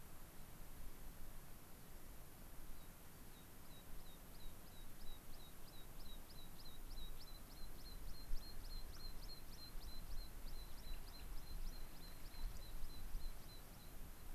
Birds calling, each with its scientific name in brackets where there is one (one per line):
American Pipit (Anthus rubescens)